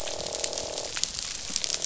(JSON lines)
{"label": "biophony, croak", "recorder": "SoundTrap 500"}